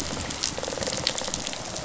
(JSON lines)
{"label": "biophony, rattle response", "recorder": "SoundTrap 500"}